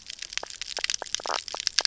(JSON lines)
{"label": "biophony, knock croak", "recorder": "SoundTrap 300"}